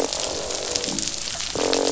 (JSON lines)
{"label": "biophony, croak", "recorder": "SoundTrap 500"}